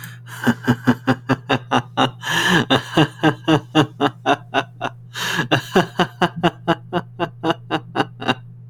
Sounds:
Laughter